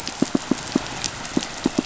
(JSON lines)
{"label": "biophony, pulse", "recorder": "SoundTrap 500"}